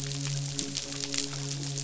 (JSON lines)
{"label": "biophony, midshipman", "recorder": "SoundTrap 500"}